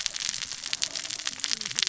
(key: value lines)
label: biophony, cascading saw
recorder: SoundTrap 600 or HydroMoth